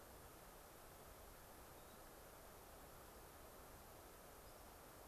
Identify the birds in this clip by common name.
Hermit Thrush, Mountain Chickadee